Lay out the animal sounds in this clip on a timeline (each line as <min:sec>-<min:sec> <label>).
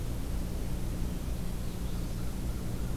0:01.1-0:02.3 Magnolia Warbler (Setophaga magnolia)